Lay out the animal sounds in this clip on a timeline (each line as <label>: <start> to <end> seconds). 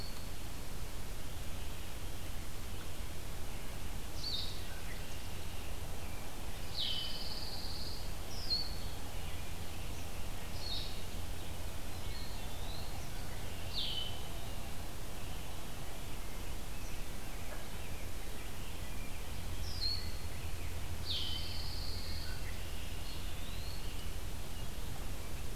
Blue-headed Vireo (Vireo solitarius): 3.9 to 14.2 seconds
Red-winged Blackbird (Agelaius phoeniceus): 4.6 to 5.0 seconds
Pine Warbler (Setophaga pinus): 6.6 to 8.1 seconds
Ovenbird (Seiurus aurocapilla): 10.6 to 12.1 seconds
Eastern Wood-Pewee (Contopus virens): 11.9 to 12.9 seconds
Red-winged Blackbird (Agelaius phoeniceus): 13.1 to 14.1 seconds
Rose-breasted Grosbeak (Pheucticus ludovicianus): 17.6 to 21.6 seconds
Blue-headed Vireo (Vireo solitarius): 19.5 to 21.5 seconds
Pine Warbler (Setophaga pinus): 20.7 to 22.8 seconds
Red-winged Blackbird (Agelaius phoeniceus): 22.1 to 23.3 seconds
Eastern Wood-Pewee (Contopus virens): 23.0 to 23.9 seconds